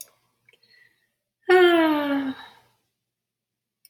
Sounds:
Sigh